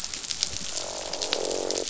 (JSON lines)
{"label": "biophony, croak", "recorder": "SoundTrap 500"}